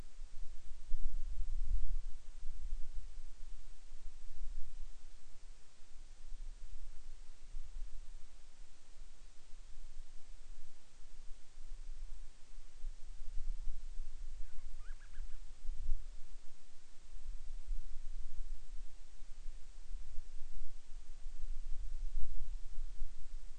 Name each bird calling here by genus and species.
Hydrobates castro